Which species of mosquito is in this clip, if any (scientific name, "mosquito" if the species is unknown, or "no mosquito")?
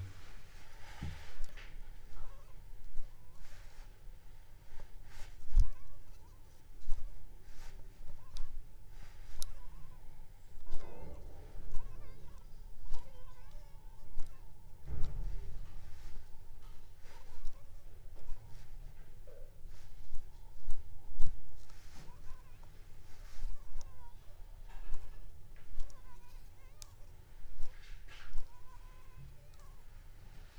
Anopheles funestus s.s.